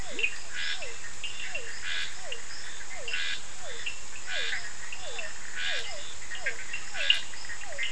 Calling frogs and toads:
Physalaemus cuvieri (Leptodactylidae), Scinax perereca (Hylidae), Sphaenorhynchus surdus (Hylidae), Boana bischoffi (Hylidae)

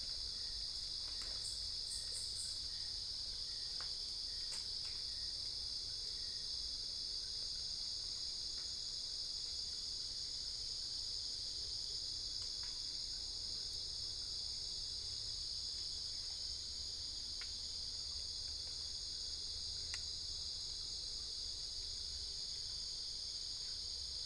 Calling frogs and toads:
none

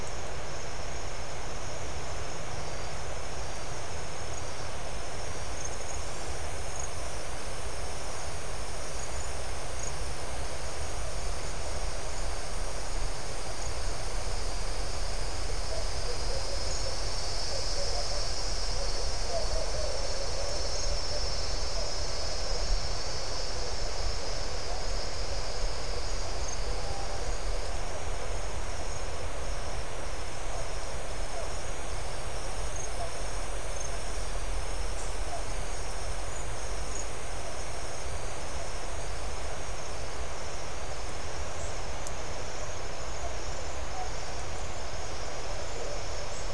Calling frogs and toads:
none

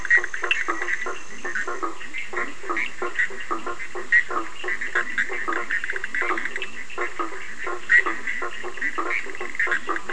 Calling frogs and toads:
Boana bischoffi (Hylidae), Boana faber (Hylidae), Leptodactylus latrans (Leptodactylidae)

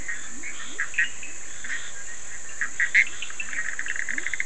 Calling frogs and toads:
Leptodactylus latrans (Leptodactylidae), Boana bischoffi (Hylidae), Sphaenorhynchus surdus (Hylidae)

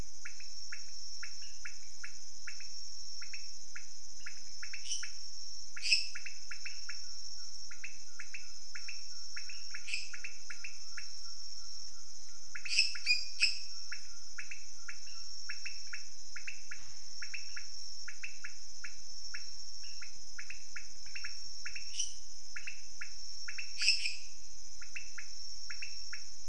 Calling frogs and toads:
Leptodactylus podicipinus (Leptodactylidae), Dendropsophus minutus (Hylidae)

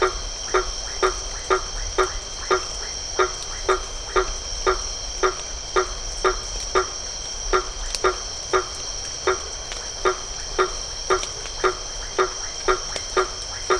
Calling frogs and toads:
Boana faber (Hylidae), Leptodactylus notoaktites (Leptodactylidae)

